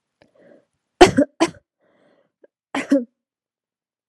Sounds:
Cough